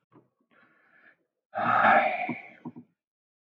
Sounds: Sigh